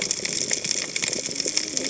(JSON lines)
{"label": "biophony, cascading saw", "recorder": "HydroMoth"}